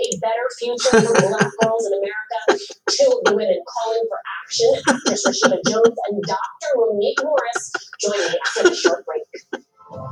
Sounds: Laughter